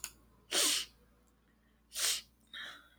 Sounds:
Sniff